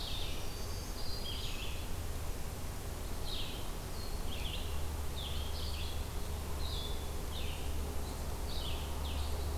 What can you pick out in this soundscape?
Red-eyed Vireo, Black-throated Green Warbler